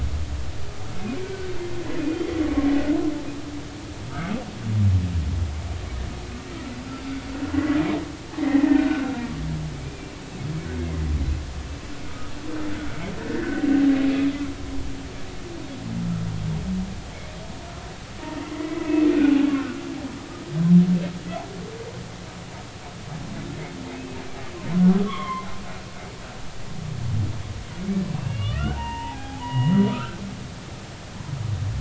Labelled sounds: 1.2	1.5	humpback whale, 1.4 to 1.6 kHz
2.0	2.2	humpback whale, 2.4 to 2.5 kHz
7.5	10.3	humpback whale, 1.4 to 2.5 kHz
12.1	12.3	humpback whale, 1.2 to 1.3 kHz
13.2	13.5	humpback whale, 1.6 to 2.1 kHz
14.6	14.9	humpback whale, 0.83 to 1.0 kHz
18.2	18.9	humpback whale, 1.8 to 2.1 kHz
25.1	25.5	humpback whale, 0.93 to 3.5 kHz
28.1	29.8	humpback whale, 0.80 to 3.6 kHz
30.9	31.2	humpback whale, 1.2 to 1.6 kHz

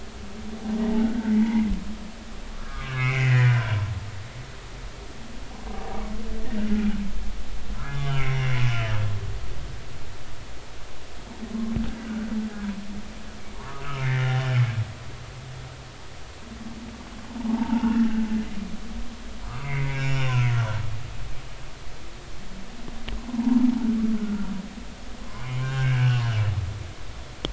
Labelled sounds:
1.0	1.7	humpback whale, 0.80 to 2.3 kHz
2.5	3.7	humpback whale, 1.1 to 2.9 kHz
5.7	6.0	humpback whale, 0.80 to 0.83 kHz
7.8	9.0	humpback whale, 1.6 to 5.6 kHz
13.1	14.4	humpback whale, 0.90 to 2.2 kHz
17.4	18.1	humpback whale, 0.80 to 3.0 kHz
19.5	20.5	humpback whale, 0.96 to 5.7 kHz
23.3	23.6	humpback whale, 0.80 to 1.1 kHz
24.2	24.5	humpback whale, 1.3 to 1.5 kHz
25.2	26.2	humpback whale, 0.93 to 2.9 kHz

